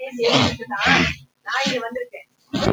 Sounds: Sniff